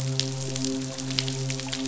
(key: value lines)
label: biophony, midshipman
recorder: SoundTrap 500